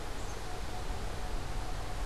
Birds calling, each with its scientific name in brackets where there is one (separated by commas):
Black-capped Chickadee (Poecile atricapillus)